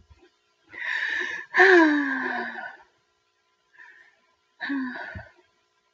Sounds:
Sigh